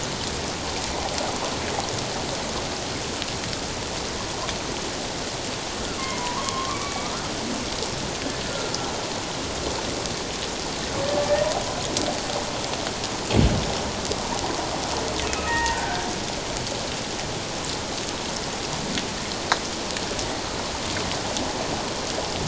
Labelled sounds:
6.0	7.3	humpback whale, 0.91 to 2.4 kHz
8.5	8.7	humpback whale, 1.3 to 1.5 kHz
15.2	16.1	humpback whale, 0.88 to 2.7 kHz

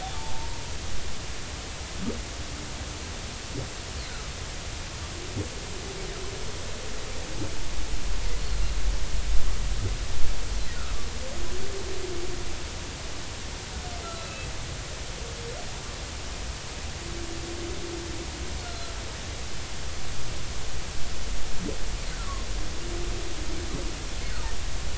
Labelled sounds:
0.0	0.6	humpback whale, 0.80 to 1.0 kHz
8.4	8.7	humpback whale, 4.1 to 4.4 kHz
14.0	14.4	humpback whale, 1.2 to 4.2 kHz
18.7	18.9	humpback whale, 4.0 to 4.3 kHz

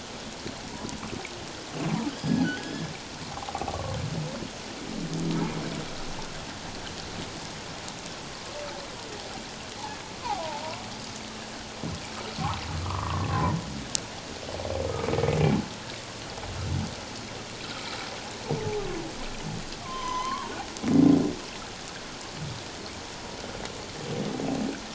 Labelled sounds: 2.1	2.9	humpback whale, 1.4 to 5.2 kHz
3.3	4.0	humpback whale, 0.78 to 1.2 kHz
12.8	13.6	humpback whale, 0.91 to 1.3 kHz
19.8	20.5	humpback whale, 0.78 to 6.3 kHz

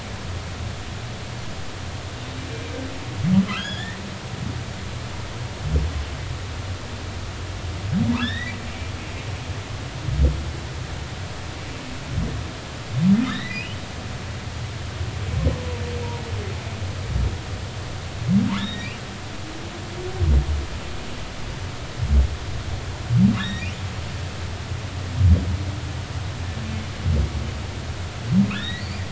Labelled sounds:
2.5	4.0	humpback whale, 1.2 to 3.7 kHz
8.2	8.6	humpback whale, 1.5 to 4.0 kHz
13.3	13.8	humpback whale, 1.7 to 4.1 kHz
18.6	18.9	humpback whale, 1.7 to 3.8 kHz
23.4	23.7	humpback whale, 1.6 to 3.8 kHz
28.5	29.0	humpback whale, 1.6 to 4.9 kHz

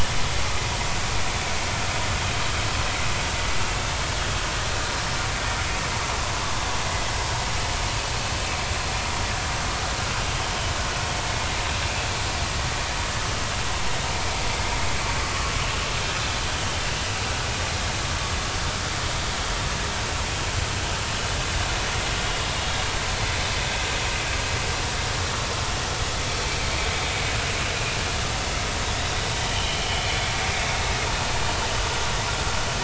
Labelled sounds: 29.5	29.8	vessel noise, 2.8 to 3.2 kHz

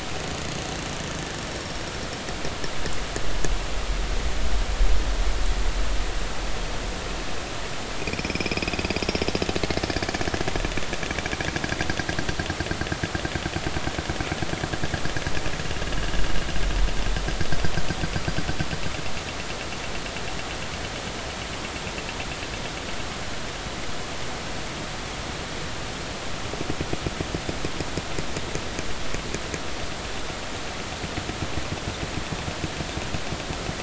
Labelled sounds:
1.5	1.9	killer whale, northern resident, 5.4 to 5.6 kHz
8.0	9.0	killer whale, northern resident, 2.1 to 5.5 kHz

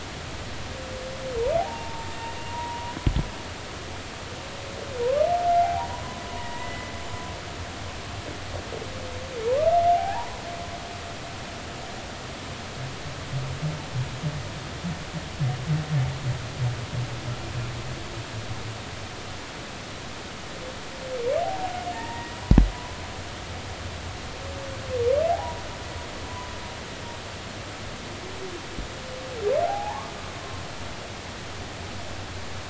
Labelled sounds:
1.6	3.0	humpback whale, 0.80 to 7.4 kHz
5.6	6.9	humpback whale, 0.80 to 2.0 kHz
9.9	10.4	humpback whale, 0.80 to 1.1 kHz
21.9	22.4	humpback whale, 0.86 to 1.9 kHz
25.3	25.6	humpback whale, 0.80 to 1.0 kHz
29.6	30.1	humpback whale, 0.80 to 1.2 kHz

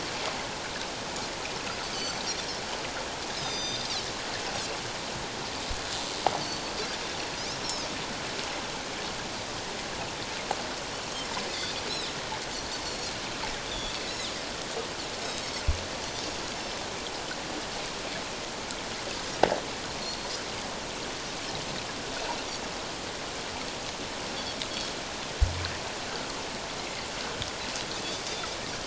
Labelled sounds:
1.9	2.2	Pacific white-sided dolphin, 4.4 to 6.1 kHz
3.4	4.0	Pacific white-sided dolphin, 3.6 to 6.4 kHz
6.4	6.7	Pacific white-sided dolphin, 4.3 to 4.5 kHz
11.9	13.1	Pacific white-sided dolphin, 3.5 to 4.5 kHz
13.6	14.3	Pacific white-sided dolphin, 3.2 to 4.2 kHz
20.0	20.3	Pacific white-sided dolphin, 4.2 to 4.4 kHz

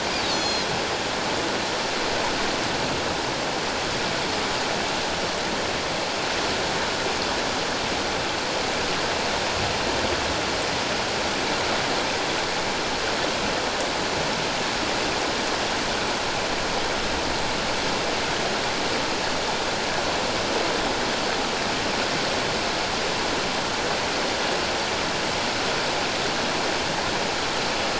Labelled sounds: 0.3	0.7	Pacific white-sided dolphin, 3.3 to 6.8 kHz

